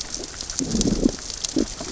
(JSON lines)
{"label": "biophony, growl", "recorder": "SoundTrap 600 or HydroMoth"}